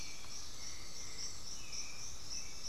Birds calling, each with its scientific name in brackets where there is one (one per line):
Undulated Tinamou (Crypturellus undulatus)
unidentified bird
Russet-backed Oropendola (Psarocolius angustifrons)
Hauxwell's Thrush (Turdus hauxwelli)